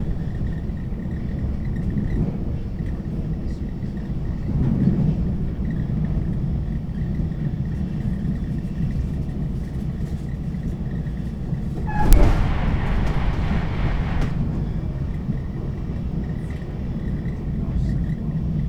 Are they at a concert?
no